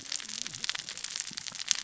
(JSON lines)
{"label": "biophony, cascading saw", "recorder": "SoundTrap 600 or HydroMoth"}